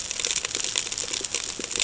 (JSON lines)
{"label": "ambient", "recorder": "HydroMoth"}